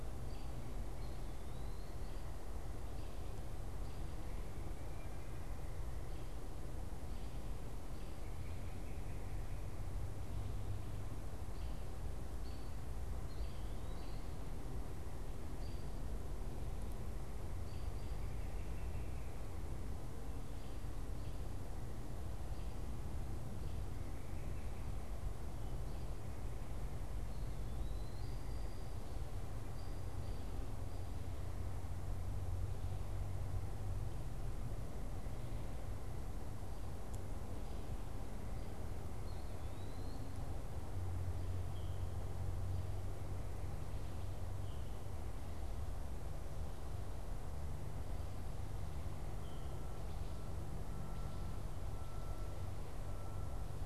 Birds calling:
American Robin (Turdus migratorius), Eastern Wood-Pewee (Contopus virens)

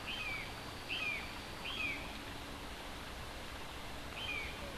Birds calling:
Brown Jay (Psilorhinus morio)

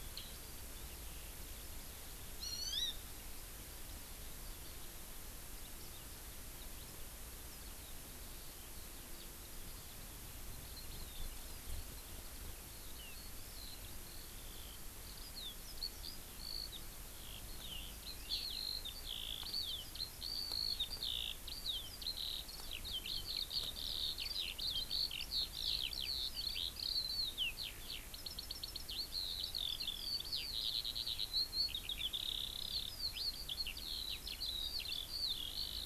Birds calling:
House Finch (Haemorhous mexicanus), Hawaii Amakihi (Chlorodrepanis virens), Eurasian Skylark (Alauda arvensis)

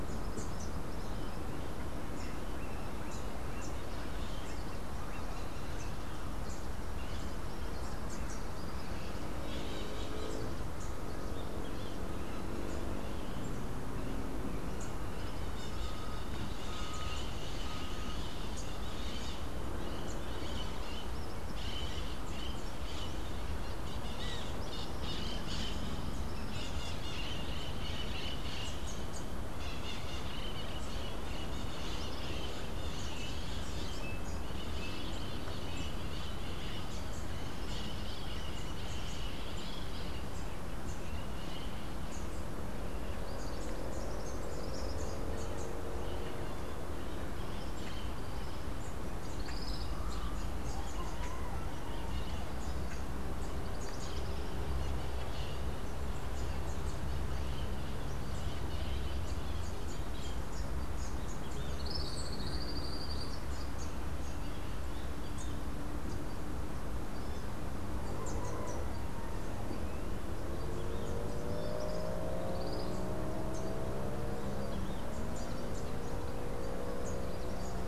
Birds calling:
Tropical Kingbird (Tyrannus melancholicus), Melodious Blackbird (Dives dives), Rufous-capped Warbler (Basileuterus rufifrons), Crimson-fronted Parakeet (Psittacara finschi)

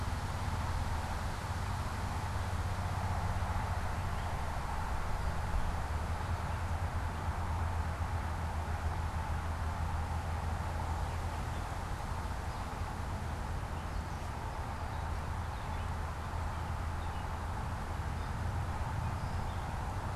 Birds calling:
Gray Catbird (Dumetella carolinensis)

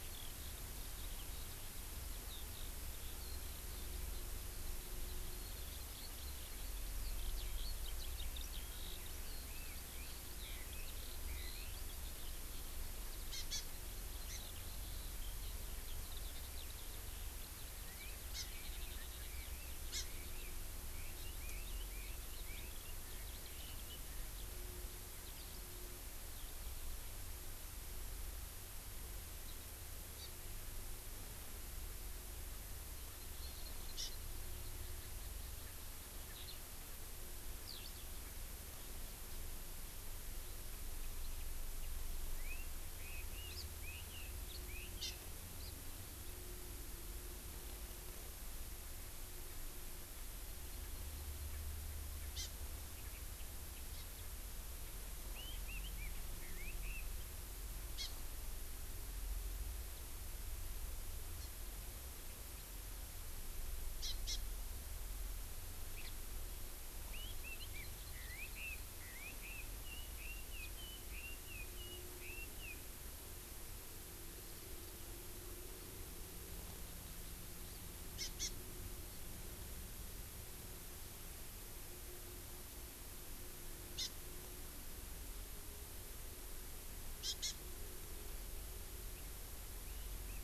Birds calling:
Hawaii Amakihi (Chlorodrepanis virens), Red-billed Leiothrix (Leiothrix lutea), Eurasian Skylark (Alauda arvensis)

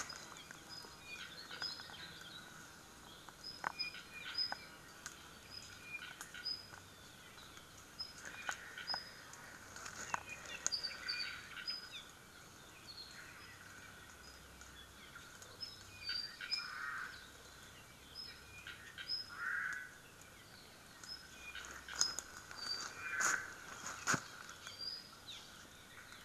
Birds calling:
Hawaii Akepa (Loxops coccineus), Apapane (Himatione sanguinea), Omao (Myadestes obscurus)

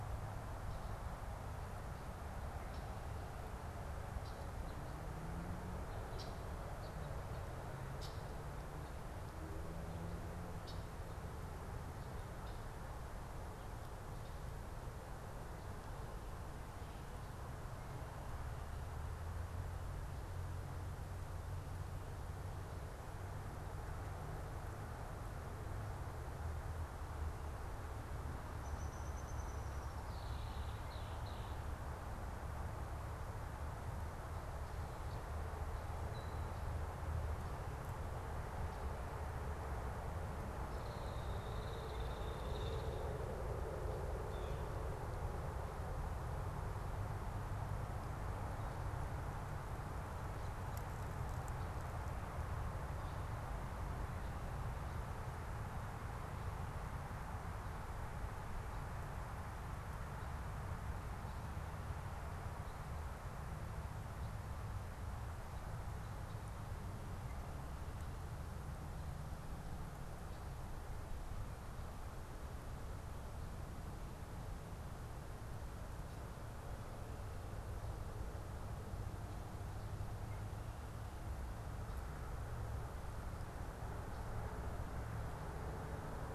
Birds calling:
Blue Jay (Cyanocitta cristata), Hairy Woodpecker (Dryobates villosus), Downy Woodpecker (Dryobates pubescens), Red-winged Blackbird (Agelaius phoeniceus)

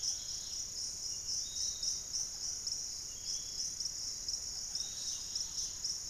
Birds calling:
Thrush-like Wren (Campylorhynchus turdinus), unidentified bird, Dusky-capped Greenlet (Pachysylvia hypoxantha), Hauxwell's Thrush (Turdus hauxwelli), Piratic Flycatcher (Legatus leucophaius)

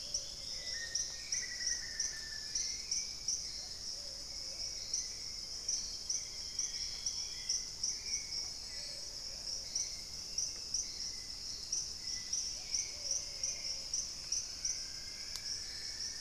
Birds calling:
Dusky-capped Greenlet (Pachysylvia hypoxantha), Plumbeous Pigeon (Patagioenas plumbea), Dusky-throated Antshrike (Thamnomanes ardesiacus), Hauxwell's Thrush (Turdus hauxwelli), Thrush-like Wren (Campylorhynchus turdinus), Cinnamon-rumped Foliage-gleaner (Philydor pyrrhodes), Black-faced Antthrush (Formicarius analis)

